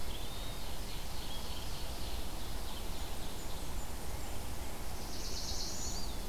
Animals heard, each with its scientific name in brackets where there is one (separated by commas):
Red-eyed Vireo (Vireo olivaceus), Ovenbird (Seiurus aurocapilla), Blackburnian Warbler (Setophaga fusca), Eastern Wood-Pewee (Contopus virens), Black-throated Blue Warbler (Setophaga caerulescens)